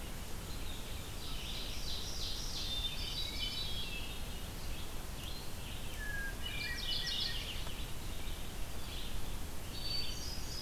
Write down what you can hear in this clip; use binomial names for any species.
Vireo olivaceus, Seiurus aurocapilla, Catharus guttatus, Geothlypis philadelphia